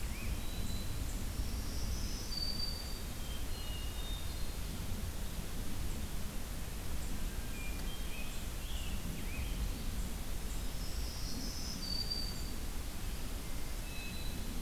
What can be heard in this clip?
Black-throated Green Warbler, Eastern Wood-Pewee, Hermit Thrush, Scarlet Tanager